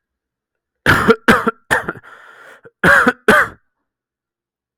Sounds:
Cough